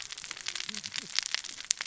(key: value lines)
label: biophony, cascading saw
recorder: SoundTrap 600 or HydroMoth